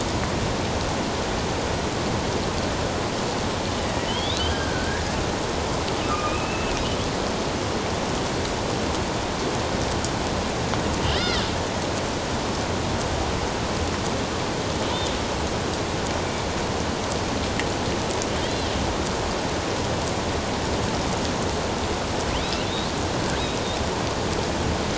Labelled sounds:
4.1	5.0	killer whale, northern resident, A clan, AB subclan, 1.4 to 4.0 kHz
6.0	6.8	killer whale, northern resident, A clan, AB subclan, 1.1 to 2.8 kHz
11.1	11.5	killer whale, northern resident, A clan, AB subclan, 1.5 to 4.4 kHz
18.4	18.7	killer whale, northern resident, A clan, AB subclan, 3.0 to 3.5 kHz
22.6	22.9	killer whale, northern resident, A clan, AB subclan, 3.4 to 4.0 kHz

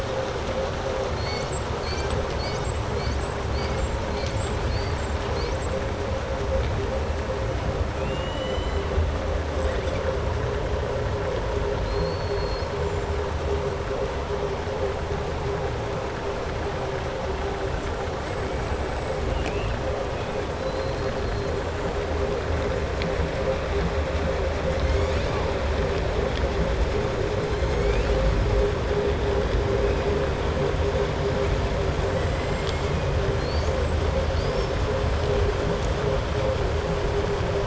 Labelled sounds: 1.1	1.7	killer whale, southern resident, 2.0 to 8.0 kHz
7.9	8.8	killer whale, southern resident, 1.9 to 4.1 kHz
11.8	12.7	killer whale, southern resident, 4.1 to 5.4 kHz
18.5	19.2	killer whale, southern resident, 6.8 to 8.0 kHz
20.6	21.1	killer whale, southern resident, 3.8 to 5.1 kHz
33.3	34.7	killer whale, southern resident, 3.5 to 8.0 kHz

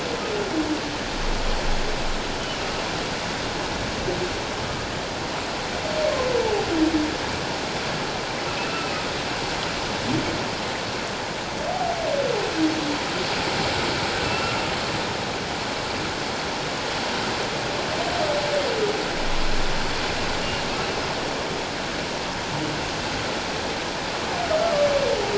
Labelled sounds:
4.6	4.9	humpback whale, 1.2 to 1.3 kHz
14.2	14.5	humpback whale, 2.6 to 2.8 kHz

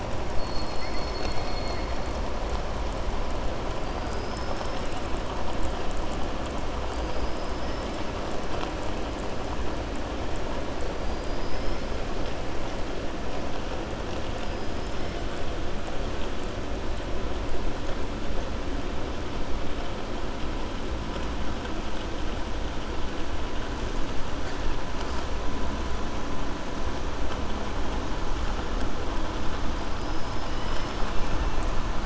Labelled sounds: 14.4	15.1	killer whale, southern resident, 4.9 to 7.2 kHz

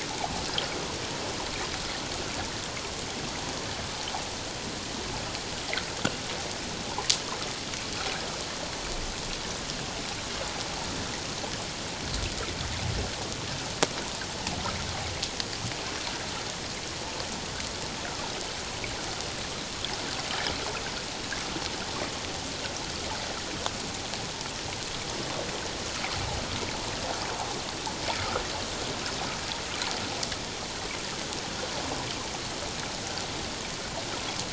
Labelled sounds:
28.1	28.4	water noise, 1.2 to 1.5 kHz

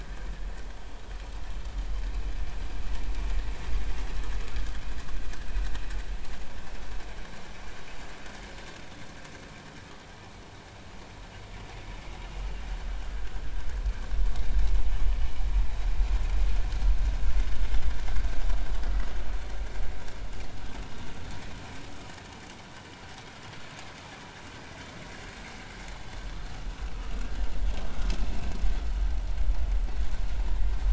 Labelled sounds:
13.1	13.4	vessel noise, 1.4 to 1.7 kHz

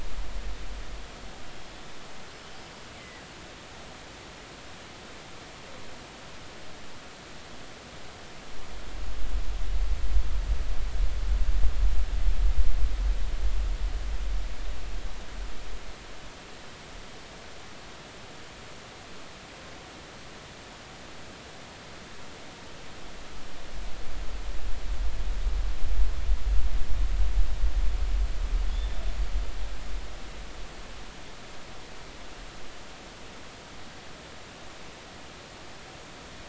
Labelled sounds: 3.0	3.3	killer whale, northern resident, G clan, GG subclan, call N23ii, 1.9 to 2.1 kHz
28.7	28.9	killer whale, northern resident, G clan, GG subclan, call N28, 3.3 to 3.6 kHz

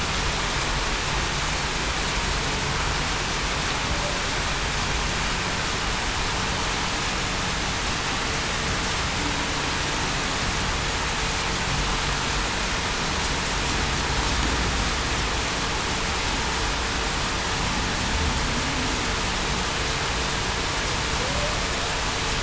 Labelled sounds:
21.2	21.5	humpback whale, 0.47 to 0.63 kHz

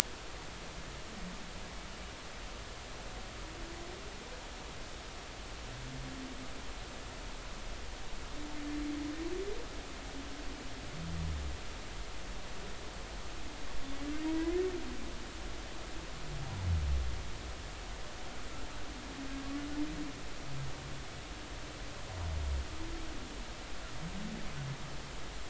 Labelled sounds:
14.2	14.6	humpback whale, 0.90 to 2.1 kHz

